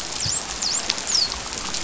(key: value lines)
label: biophony, dolphin
recorder: SoundTrap 500